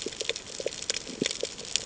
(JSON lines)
{"label": "ambient", "recorder": "HydroMoth"}